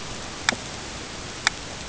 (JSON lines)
{"label": "ambient", "recorder": "HydroMoth"}